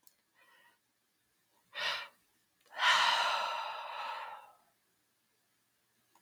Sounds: Sigh